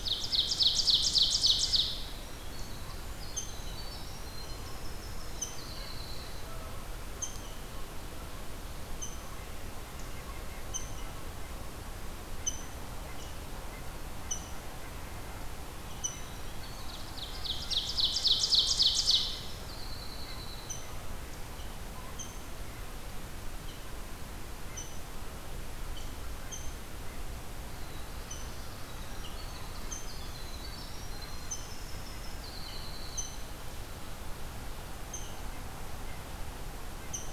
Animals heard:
Winter Wren (Troglodytes hiemalis)
Black-throated Blue Warbler (Setophaga caerulescens)
Rose-breasted Grosbeak (Pheucticus ludovicianus)
Ovenbird (Seiurus aurocapilla)

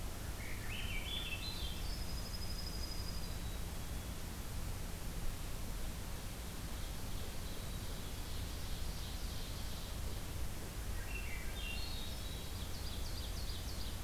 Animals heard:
Swainson's Thrush (Catharus ustulatus)
Ovenbird (Seiurus aurocapilla)
Dark-eyed Junco (Junco hyemalis)
Black-capped Chickadee (Poecile atricapillus)

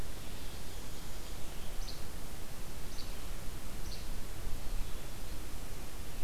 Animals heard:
Least Flycatcher (Empidonax minimus)

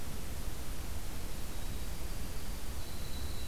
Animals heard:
Winter Wren (Troglodytes hiemalis)

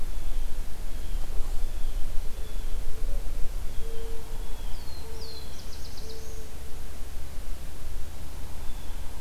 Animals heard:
Blue Jay (Cyanocitta cristata)
Black-throated Blue Warbler (Setophaga caerulescens)

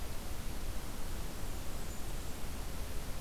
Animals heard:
Blackburnian Warbler (Setophaga fusca)

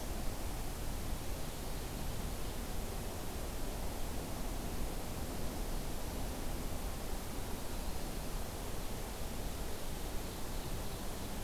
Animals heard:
Ovenbird (Seiurus aurocapilla)

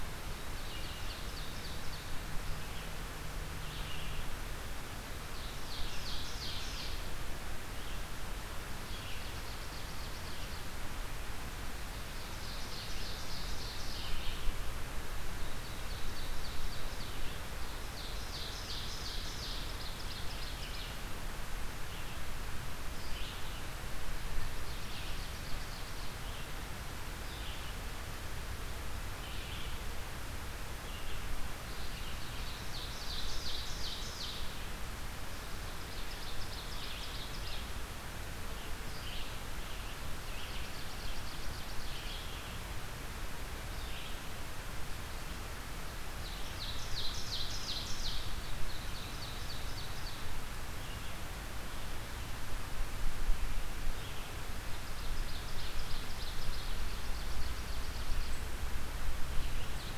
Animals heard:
Ovenbird (Seiurus aurocapilla)
Red-eyed Vireo (Vireo olivaceus)

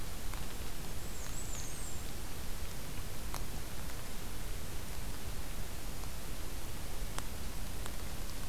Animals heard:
Black-and-white Warbler (Mniotilta varia)

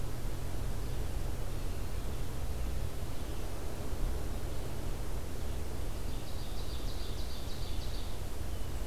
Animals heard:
Ovenbird (Seiurus aurocapilla)

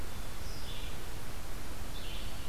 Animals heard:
Black-capped Chickadee (Poecile atricapillus)
Red-eyed Vireo (Vireo olivaceus)

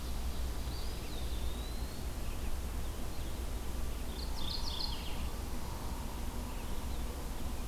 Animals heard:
Mourning Warbler (Geothlypis philadelphia)
Eastern Wood-Pewee (Contopus virens)

